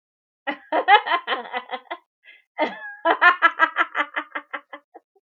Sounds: Laughter